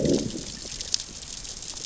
{"label": "biophony, growl", "recorder": "SoundTrap 600 or HydroMoth"}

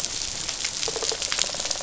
{"label": "biophony, rattle response", "recorder": "SoundTrap 500"}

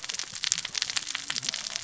{"label": "biophony, cascading saw", "recorder": "SoundTrap 600 or HydroMoth"}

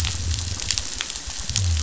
{"label": "biophony", "recorder": "SoundTrap 500"}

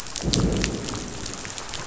{"label": "biophony, growl", "recorder": "SoundTrap 500"}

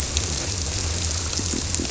{"label": "biophony", "recorder": "SoundTrap 300"}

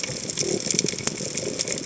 {"label": "biophony", "recorder": "HydroMoth"}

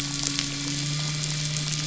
{"label": "anthrophony, boat engine", "recorder": "SoundTrap 500"}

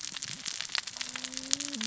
{"label": "biophony, cascading saw", "recorder": "SoundTrap 600 or HydroMoth"}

